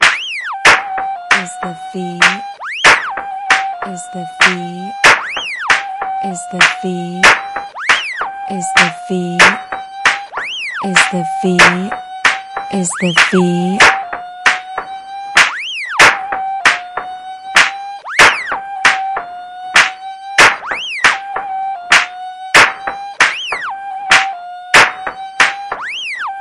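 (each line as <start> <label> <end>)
0.0 Synthetic female voice speaking in a repeating, oscillating, and irregular manner. 26.4
0.0 Synthetic flute sound, repeating, oscillating, and high-pitched. 26.4
0.0 Synthetic high-pitched drum sound that oscillates and repeats, resembling clapping. 26.4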